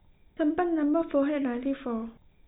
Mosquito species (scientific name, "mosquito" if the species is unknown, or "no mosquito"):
no mosquito